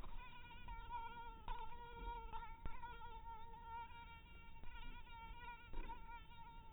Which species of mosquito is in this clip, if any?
mosquito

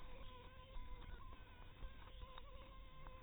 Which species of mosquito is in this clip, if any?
Anopheles maculatus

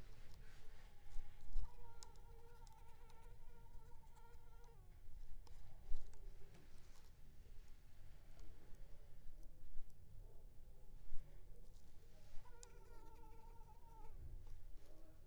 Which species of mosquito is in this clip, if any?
Culex pipiens complex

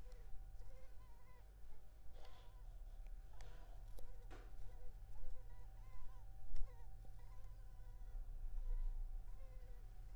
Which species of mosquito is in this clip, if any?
Culex pipiens complex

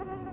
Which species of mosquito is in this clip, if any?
Anopheles freeborni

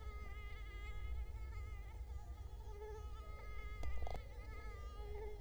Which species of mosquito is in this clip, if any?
Culex quinquefasciatus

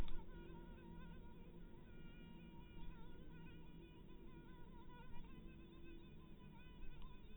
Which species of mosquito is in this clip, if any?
mosquito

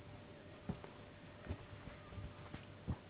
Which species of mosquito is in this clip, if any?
Anopheles gambiae s.s.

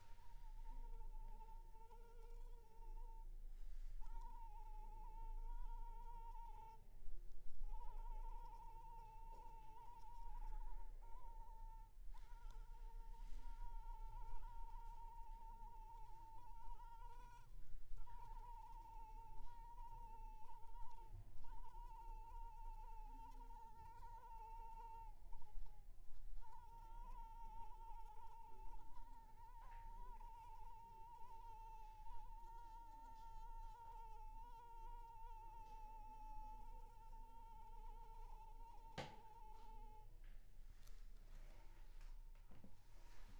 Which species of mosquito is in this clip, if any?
Anopheles arabiensis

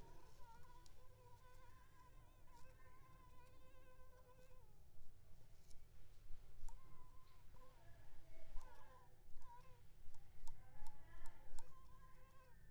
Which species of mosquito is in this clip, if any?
Culex pipiens complex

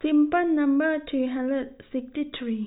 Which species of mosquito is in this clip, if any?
no mosquito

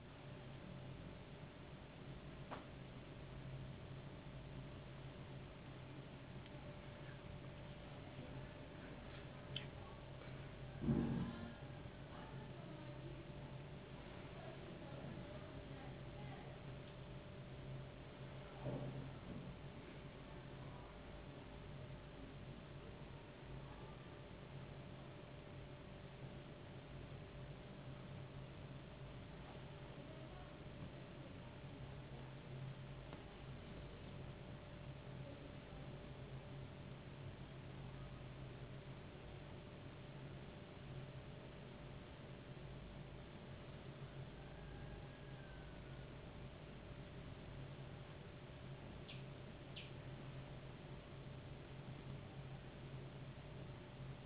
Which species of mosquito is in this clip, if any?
no mosquito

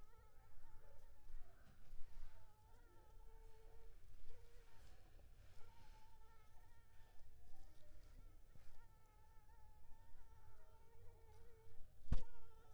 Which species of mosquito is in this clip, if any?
Anopheles arabiensis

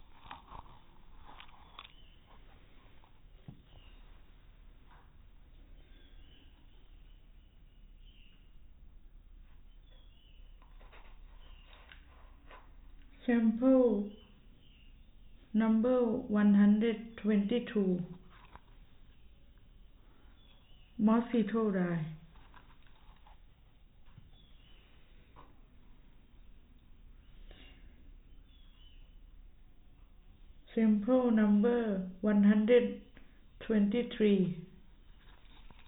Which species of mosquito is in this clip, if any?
no mosquito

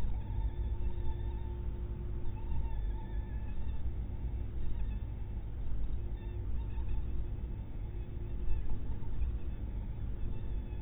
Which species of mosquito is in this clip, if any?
mosquito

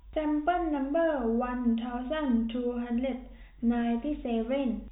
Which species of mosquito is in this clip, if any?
no mosquito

